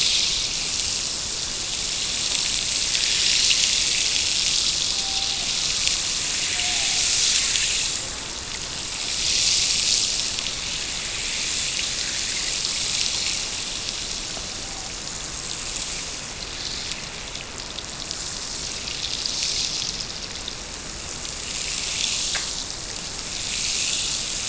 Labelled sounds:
4.8	5.5	killer whale, Bigg's (transient), Gulf of Alaska transient, 0.59 to 0.91 kHz
6.5	7.1	killer whale, Bigg's (transient), Gulf of Alaska transient, 0.50 to 0.91 kHz

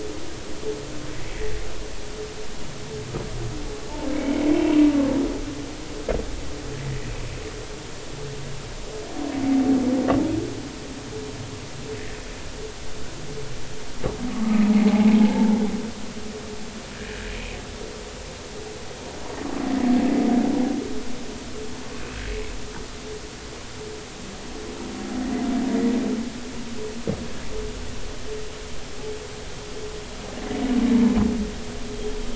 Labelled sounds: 4.1	4.4	humpback whale, 2.1 to 2.3 kHz
14.3	15.6	humpback whale, 0.80 to 1.3 kHz
17.0	17.3	humpback whale, 1.6 to 1.9 kHz

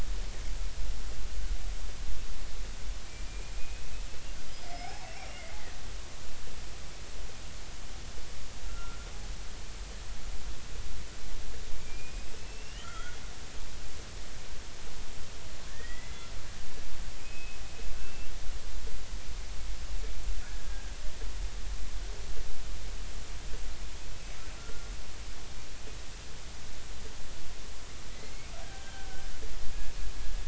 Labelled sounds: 3.3	5.4	killer whale, Bigg's (transient), 0.80 to 5.6 kHz
8.6	9.0	killer whale, Bigg's (transient), 1.3 to 1.5 kHz
11.8	13.2	killer whale, Bigg's (transient), 1.2 to 7.2 kHz
15.7	16.3	killer whale, Bigg's (transient), 1.7 to 2.1 kHz
17.2	18.3	killer whale, Bigg's (transient), 2.4 to 2.8 kHz
20.4	21.0	killer whale, Bigg's (transient), 1.5 to 1.7 kHz
24.6	24.9	killer whale, Bigg's (transient), 1.3 to 1.5 kHz
28.1	29.1	killer whale, Bigg's (transient), 1.5 to 3.2 kHz

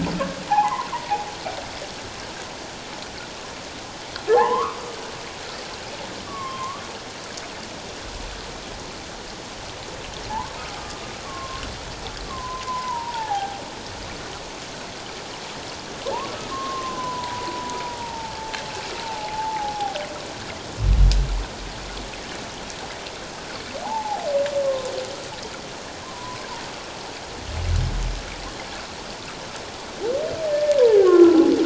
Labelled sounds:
0.5	1.3	humpback whale, 0.78 to 1.2 kHz
4.3	4.8	humpback whale, 0.78 to 2.1 kHz
6.3	6.8	humpback whale, 0.84 to 1.3 kHz
10.3	10.5	humpback whale, 0.81 to 1.2 kHz
11.2	11.6	humpback whale, 1.0 to 1.2 kHz
12.3	13.6	humpback whale, 0.78 to 1.2 kHz
16.5	18.6	humpback whale, 0.78 to 1.1 kHz
19.0	20.0	humpback whale, 0.78 to 1.0 kHz
23.8	24.9	humpback whale, 0.78 to 1.1 kHz
26.0	26.4	humpback whale, 0.94 to 1.1 kHz
30.5	31.4	humpback whale, 0.78 to 1.9 kHz

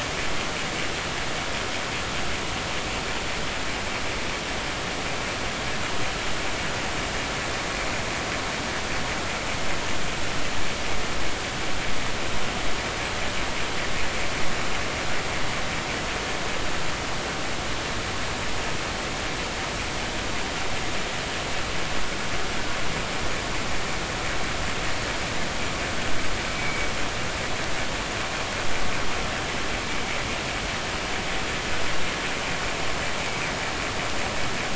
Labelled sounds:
26.5	26.9	vessel noise, 2.1 to 2.4 kHz

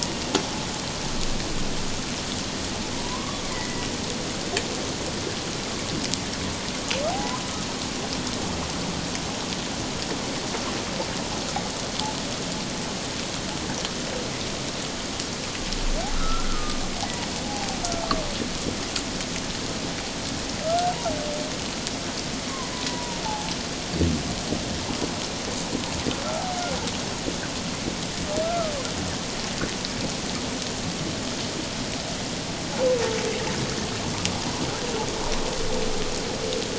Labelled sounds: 2.9	3.9	humpback whale, 0.91 to 2.2 kHz
7.1	7.4	humpback whale, 0.78 to 1.1 kHz
16.1	16.8	humpback whale, 1.2 to 1.5 kHz
20.6	20.9	humpback whale, 1.2 to 1.6 kHz
22.9	23.5	humpback whale, 0.78 to 1.0 kHz
28.4	28.7	humpback whale, 1.1 to 1.4 kHz

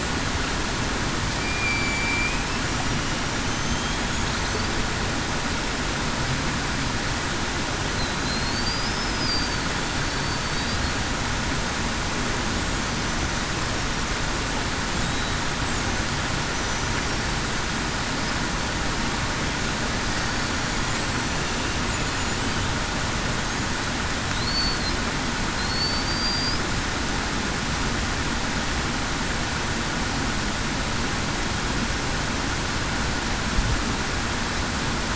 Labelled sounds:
1.4	2.4	killer whale, Bigg's (transient), 2.2 to 2.6 kHz
8.2	8.5	killer whale, Bigg's (transient), 4.0 to 4.4 kHz
9.2	9.6	killer whale, Bigg's (transient), 4.5 to 4.8 kHz
24.4	24.8	killer whale, Bigg's (transient), 4.3 to 4.5 kHz
25.7	26.6	killer whale, Bigg's (transient), 4.3 to 5.1 kHz

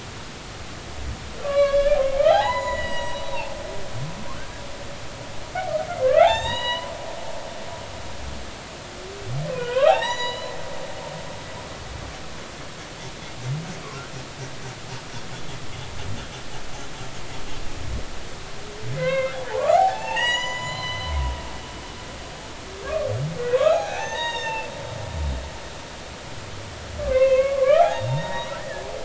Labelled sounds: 1.4	3.3	humpback whale, 0.80 to 7.0 kHz
6.0	6.9	humpback whale, 0.80 to 7.4 kHz
9.5	10.6	humpback whale, 0.80 to 7.0 kHz
18.9	21.1	humpback whale, 0.80 to 7.8 kHz
23.5	24.7	humpback whale, 0.80 to 6.7 kHz
27.0	28.8	humpback whale, 0.80 to 3.9 kHz

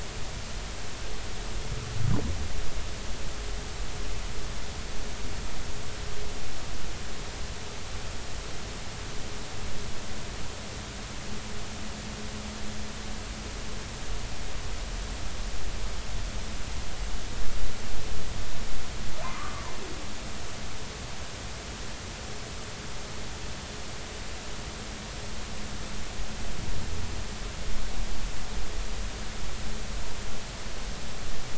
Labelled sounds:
19.2	19.5	humpback whale, 0.90 to 1.3 kHz

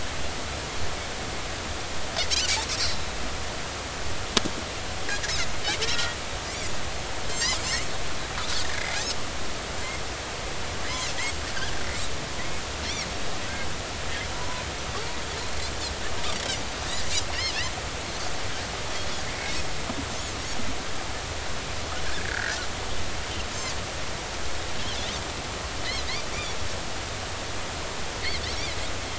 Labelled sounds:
5.8	6.2	Pacific white-sided dolphin, 1.3 to 2.0 kHz
7.2	7.9	Pacific white-sided dolphin, 3.7 to 7.6 kHz
14.3	14.6	Pacific white-sided dolphin, 0.93 to 1.1 kHz
22.1	22.6	Pacific white-sided dolphin, 1.4 to 2.0 kHz

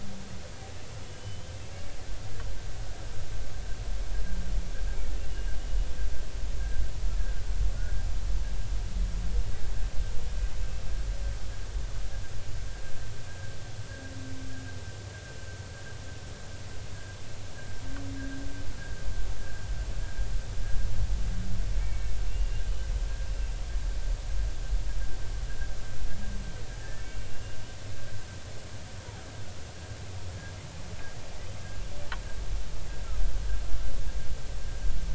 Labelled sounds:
1.0	1.5	humpback whale, 2.9 to 3.1 kHz
14.5	14.7	humpback whale, 1.5 to 1.7 kHz
21.8	22.7	humpback whale, 2.1 to 2.9 kHz
26.8	27.3	humpback whale, 1.7 to 2.3 kHz

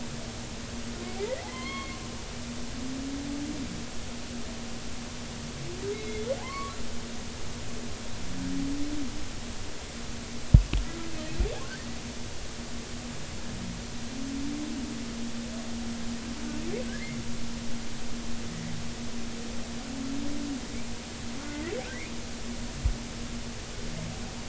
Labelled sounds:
1.2	2.0	humpback whale, 0.96 to 4.4 kHz
5.9	6.8	humpback whale, 0.80 to 3.9 kHz
11.6	12.0	humpback whale, 1.4 to 2.0 kHz

